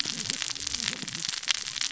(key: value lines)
label: biophony, cascading saw
recorder: SoundTrap 600 or HydroMoth